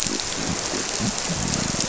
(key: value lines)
label: biophony
recorder: SoundTrap 300